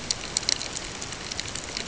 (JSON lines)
{"label": "ambient", "recorder": "HydroMoth"}